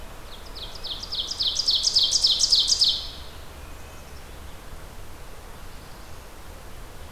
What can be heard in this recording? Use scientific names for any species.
Seiurus aurocapilla, Poecile atricapillus, Setophaga caerulescens